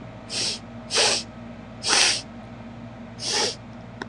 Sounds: Sniff